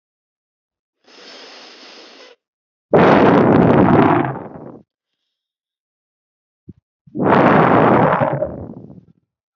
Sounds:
Sigh